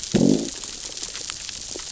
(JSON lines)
{"label": "biophony, growl", "recorder": "SoundTrap 600 or HydroMoth"}